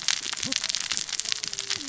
{"label": "biophony, cascading saw", "recorder": "SoundTrap 600 or HydroMoth"}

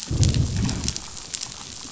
{"label": "biophony, growl", "recorder": "SoundTrap 500"}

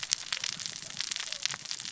{"label": "biophony, cascading saw", "recorder": "SoundTrap 600 or HydroMoth"}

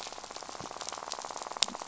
{"label": "biophony, rattle", "recorder": "SoundTrap 500"}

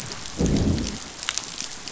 {"label": "biophony, growl", "recorder": "SoundTrap 500"}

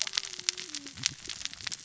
{"label": "biophony, cascading saw", "recorder": "SoundTrap 600 or HydroMoth"}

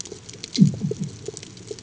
{"label": "anthrophony, bomb", "recorder": "HydroMoth"}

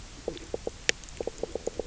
{"label": "biophony, knock croak", "recorder": "SoundTrap 300"}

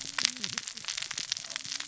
{"label": "biophony, cascading saw", "recorder": "SoundTrap 600 or HydroMoth"}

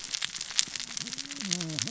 {"label": "biophony, cascading saw", "recorder": "SoundTrap 600 or HydroMoth"}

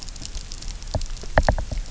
{"label": "biophony, knock", "recorder": "SoundTrap 300"}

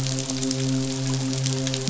{"label": "biophony, midshipman", "recorder": "SoundTrap 500"}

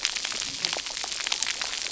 {"label": "biophony, cascading saw", "recorder": "SoundTrap 300"}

